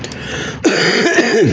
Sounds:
Throat clearing